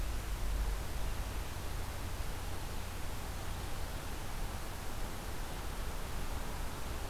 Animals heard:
forest ambience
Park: Marsh-Billings-Rockefeller National Historical Park